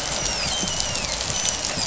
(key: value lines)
label: biophony, dolphin
recorder: SoundTrap 500